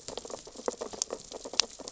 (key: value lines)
label: biophony, sea urchins (Echinidae)
recorder: SoundTrap 600 or HydroMoth